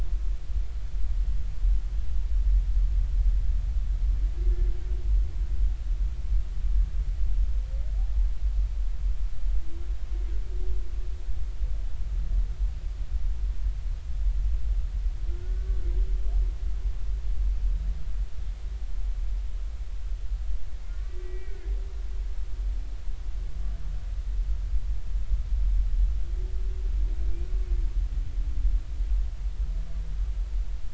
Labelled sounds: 15.3	15.8	humpback whale, 1.3 to 1.6 kHz
20.9	21.6	humpback whale, 1.1 to 2.4 kHz

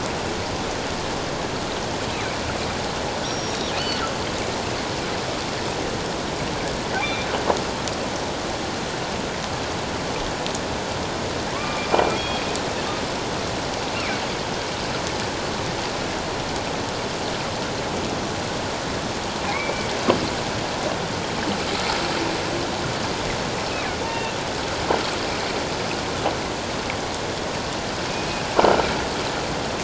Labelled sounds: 3.2	3.6	killer whale, northern resident, G clan, 5.5 to 5.8 kHz
7.0	7.3	killer whale, northern resident, G clan, 2.1 to 2.5 kHz
11.5	12.4	killer whale, northern resident, G clan, 0.97 to 3.4 kHz
13.9	14.2	killer whale, northern resident, G clan, 2.2 to 2.8 kHz
19.5	19.9	killer whale, northern resident, G clan, 2.0 to 2.4 kHz
24.1	24.4	killer whale, northern resident, G clan, 2.6 to 2.8 kHz
28.1	28.4	killer whale, northern resident, G clan, 2.4 to 2.6 kHz

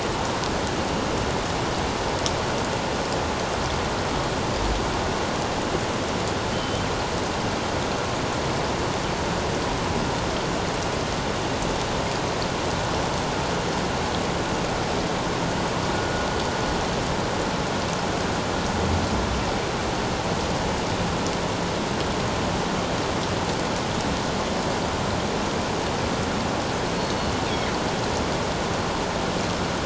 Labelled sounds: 6.5	6.9	killer whale, northern resident, G clan, 2.9 to 3.2 kHz
27.0	27.3	killer whale, northern resident, G clan, 4.3 to 4.5 kHz

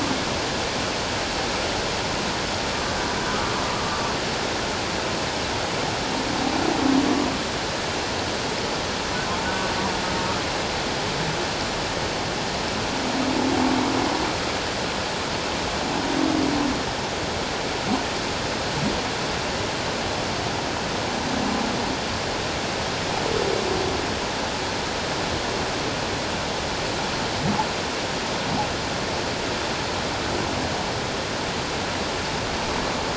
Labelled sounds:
9.4	9.7	humpback whale, 1.4 to 1.6 kHz

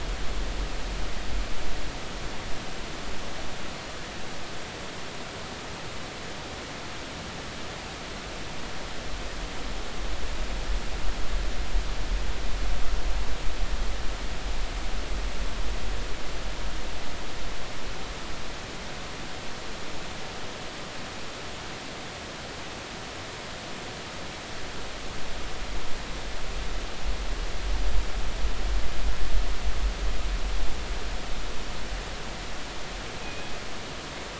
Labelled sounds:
33.2	33.5	killer whale, northern resident, G clan, call N24ii, 2.4 to 2.6 kHz

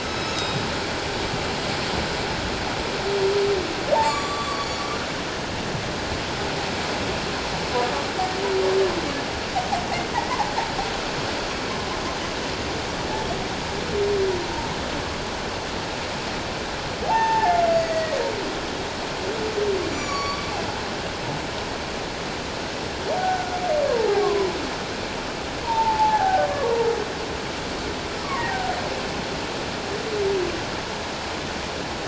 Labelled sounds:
0.0	0.7	humpback whale, 3.7 to 5.3 kHz
4.0	4.9	humpback whale, 1.0 to 8.0 kHz
10.1	10.4	humpback whale, 1.8 to 2.2 kHz
17.0	18.2	humpback whale, 0.78 to 6.7 kHz
19.9	20.4	humpback whale, 1.1 to 7.2 kHz
23.2	23.6	humpback whale, 1.4 to 1.6 kHz
23.9	24.5	humpback whale, 0.78 to 1.2 kHz
25.6	26.5	humpback whale, 0.78 to 1.8 kHz
28.2	28.6	humpback whale, 0.88 to 1.2 kHz

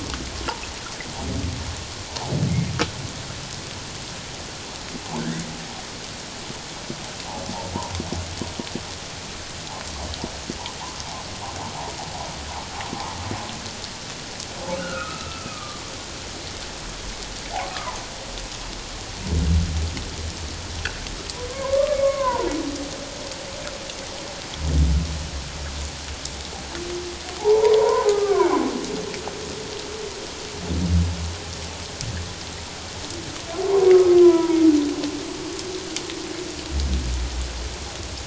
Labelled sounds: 14.7	15.8	humpback whale, 1.1 to 1.5 kHz
17.5	18.1	humpback whale, 0.78 to 1.4 kHz
21.5	22.5	humpback whale, 0.88 to 2.3 kHz
27.4	28.5	humpback whale, 0.78 to 1.3 kHz
33.6	34.6	humpback whale, 0.91 to 1.4 kHz

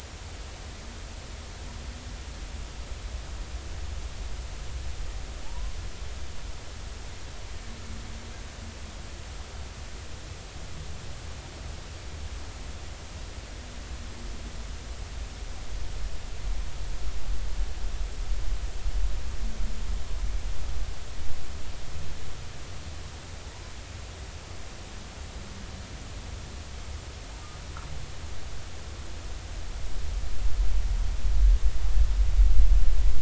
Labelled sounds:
5.4	5.8	humpback whale, 0.80 to 1.1 kHz

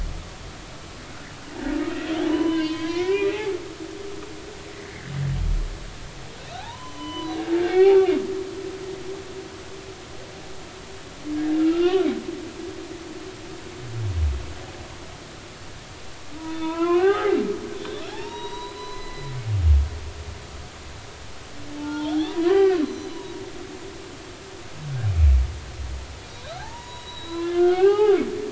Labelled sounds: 2.3	3.5	humpback whale, 0.93 to 4.2 kHz
6.4	7.4	humpback whale, 0.80 to 6.0 kHz
7.7	8.0	humpback whale, 0.80 to 2.4 kHz
11.6	11.9	humpback whale, 1.2 to 1.5 kHz
16.5	17.4	humpback whale, 0.80 to 3.6 kHz
18.0	19.3	humpback whale, 0.80 to 5.9 kHz
21.8	23.3	humpback whale, 0.83 to 6.1 kHz
26.2	28.2	humpback whale, 0.80 to 6.9 kHz

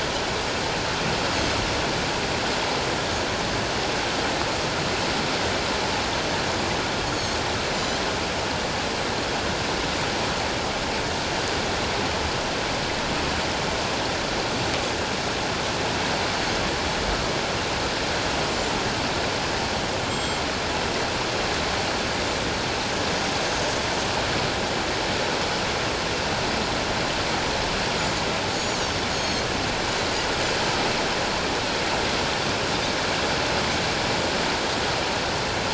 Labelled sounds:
1.3	1.6	Pacific white-sided dolphin, 6.1 to 6.8 kHz
7.1	8.0	Pacific white-sided dolphin, 4.2 to 7.2 kHz
20.1	20.4	Pacific white-sided dolphin, 3.1 to 7.7 kHz
28.6	28.8	Pacific white-sided dolphin, 6.2 to 7.0 kHz
29.1	29.5	Pacific white-sided dolphin, 4.2 to 6.8 kHz

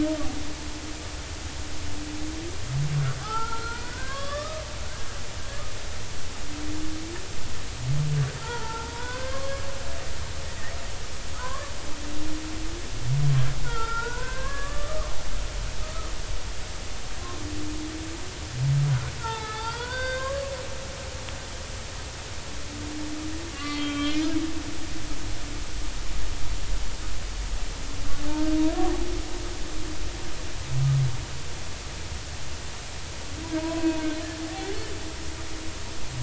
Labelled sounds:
3.2	4.6	humpback whale, 0.80 to 4.8 kHz
8.4	9.6	humpback whale, 0.83 to 4.8 kHz
11.4	11.7	humpback whale, 0.93 to 1.2 kHz
13.6	15.1	humpback whale, 0.86 to 1.8 kHz
15.8	16.1	humpback whale, 1.2 to 1.3 kHz
19.2	20.4	humpback whale, 0.80 to 4.8 kHz
23.5	24.2	humpback whale, 1.1 to 3.4 kHz
28.3	28.9	humpback whale, 0.90 to 1.6 kHz
33.6	34.0	humpback whale, 0.86 to 2.7 kHz

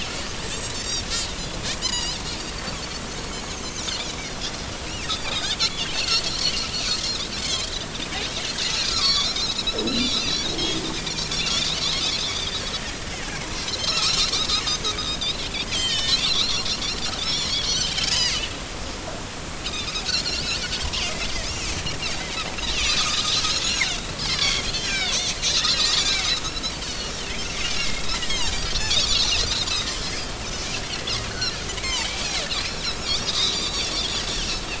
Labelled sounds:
0.7	2.2	Pacific white-sided dolphin, 1.9 to 7.2 kHz
3.1	3.7	Pacific white-sided dolphin, 6.0 to 6.7 kHz
5.0	6.6	Pacific white-sided dolphin, 2.3 to 5.2 kHz
7.0	7.7	Pacific white-sided dolphin, 2.0 to 5.3 kHz
8.9	12.6	Pacific white-sided dolphin, 0.99 to 6.1 kHz
13.6	15.5	Pacific white-sided dolphin, 1.1 to 6.7 kHz
15.7	18.4	Pacific white-sided dolphin, 1.7 to 7.7 kHz
19.7	20.5	Pacific white-sided dolphin, 2.3 to 4.9 kHz
21.0	21.7	Pacific white-sided dolphin, 2.0 to 3.0 kHz
22.7	23.9	Pacific white-sided dolphin, 1.2 to 7.5 kHz
24.3	25.3	Pacific white-sided dolphin, 1.4 to 5.8 kHz
25.7	27.1	Pacific white-sided dolphin, 1.8 to 7.4 kHz
27.7	29.5	Pacific white-sided dolphin, 1.7 to 6.8 kHz
29.9	30.2	Pacific white-sided dolphin, 4.9 to 5.3 kHz
31.8	32.5	Pacific white-sided dolphin, 0.80 to 7.6 kHz
33.0	34.0	Pacific white-sided dolphin, 3.2 to 5.8 kHz

